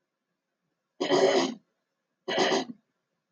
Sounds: Throat clearing